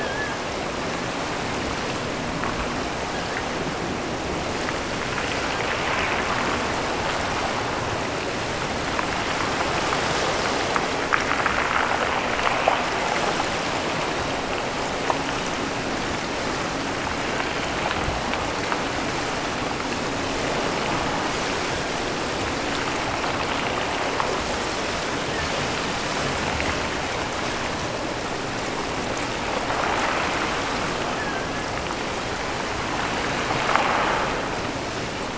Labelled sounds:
0.0	0.6	killer whale, offshore, 1.3 to 2.4 kHz
3.1	3.5	killer whale, offshore, 1.3 to 2.4 kHz
31.1	31.8	killer whale, offshore, 1.3 to 2.0 kHz

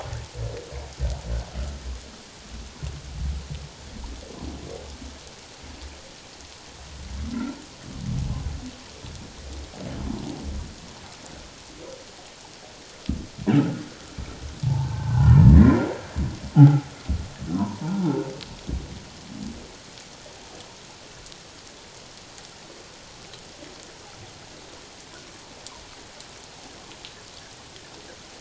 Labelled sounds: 1.6	1.9	humpback whale, 1.2 to 1.5 kHz
7.3	7.6	humpback whale, 1.3 to 1.5 kHz
14.6	15.5	humpback whale, 0.78 to 1.9 kHz
16.5	16.9	humpback whale, 0.78 to 1.5 kHz
17.5	18.2	humpback whale, 0.78 to 1.1 kHz

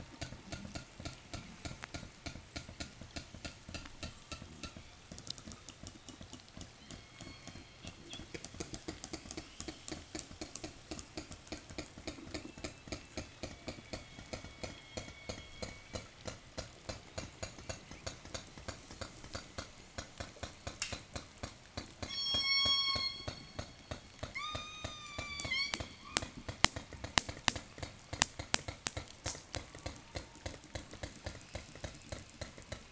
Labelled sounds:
3.6	8.6	killer whale, southern resident, 0 to 8.0 kHz
8.9	10.1	killer whale, southern resident, 1.6 to 8.0 kHz
12.1	16.3	killer whale, 0 to 6.9 kHz
21.8	23.8	killer whale, southern resident, 0 to 8.0 kHz
24.3	26.3	killer whale, southern resident, 0 to 8.0 kHz

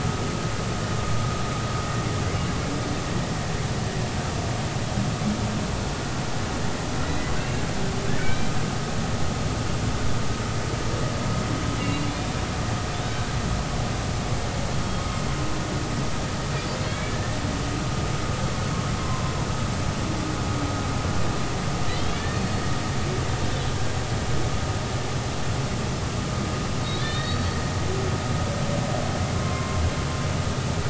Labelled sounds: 8.2	8.5	humpback whale, 2.2 to 3.2 kHz
11.8	12.1	humpback whale, 3.8 to 4.0 kHz
16.9	17.4	humpback whale, 1.7 to 2.3 kHz
19.0	19.3	humpback whale, 0.99 to 1.1 kHz
21.9	22.4	humpback whale, 1.6 to 3.5 kHz
27.0	27.6	humpback whale, 1.7 to 4.5 kHz
29.3	29.8	humpback whale, 0.96 to 1.1 kHz

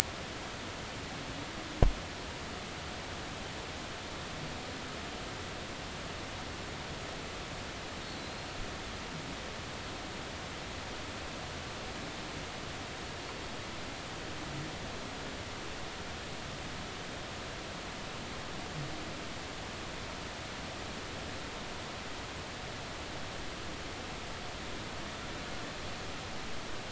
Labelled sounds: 8.1	8.5	killer whale, Bigg's (transient), 3.8 to 4.3 kHz

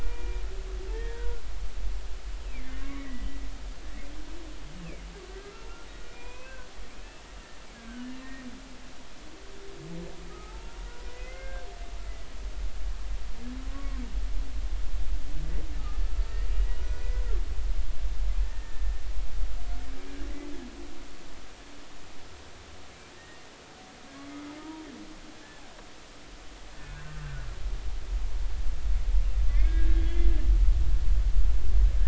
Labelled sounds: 0.0	1.4	humpback whale, 1.4 to 2.5 kHz
2.5	3.3	humpback whale, 1.0 to 2.4 kHz
4.8	5.5	humpback whale, 1.4 to 2.9 kHz
6.1	6.7	humpback whale, 0.93 to 2.7 kHz
7.7	8.1	humpback whale, 1.4 to 1.7 kHz
10.3	11.7	humpback whale, 0.83 to 2.2 kHz
13.7	14.0	humpback whale, 1.0 to 1.2 kHz
16.2	17.0	humpback whale, 1.4 to 2.0 kHz
18.4	19.0	humpback whale, 1.7 to 1.9 kHz
23.2	23.4	humpback whale, 1.8 to 1.9 kHz
24.6	24.8	humpback whale, 0.90 to 1.0 kHz
26.8	27.2	humpback whale, 1.4 to 1.7 kHz
29.5	30.3	humpback whale, 1.6 to 3.5 kHz

